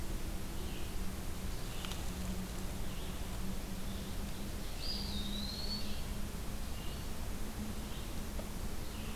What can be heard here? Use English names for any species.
Red-eyed Vireo, Eastern Wood-Pewee